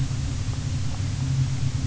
{"label": "anthrophony, boat engine", "recorder": "SoundTrap 300"}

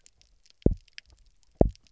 {"label": "biophony, double pulse", "recorder": "SoundTrap 300"}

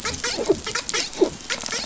{"label": "biophony, dolphin", "recorder": "SoundTrap 500"}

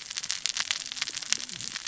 {"label": "biophony, cascading saw", "recorder": "SoundTrap 600 or HydroMoth"}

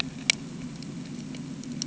{"label": "anthrophony, boat engine", "recorder": "HydroMoth"}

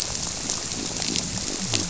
{"label": "biophony", "recorder": "SoundTrap 300"}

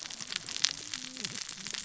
{"label": "biophony, cascading saw", "recorder": "SoundTrap 600 or HydroMoth"}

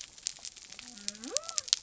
{"label": "biophony", "recorder": "SoundTrap 300"}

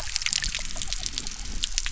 {"label": "biophony", "recorder": "SoundTrap 300"}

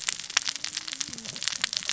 {"label": "biophony, cascading saw", "recorder": "SoundTrap 600 or HydroMoth"}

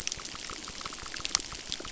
{"label": "biophony, crackle", "recorder": "SoundTrap 600"}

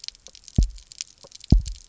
{"label": "biophony, double pulse", "recorder": "SoundTrap 300"}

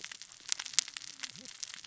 {"label": "biophony, cascading saw", "recorder": "SoundTrap 600 or HydroMoth"}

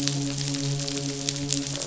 {"label": "biophony, midshipman", "recorder": "SoundTrap 500"}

